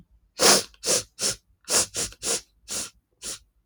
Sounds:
Sniff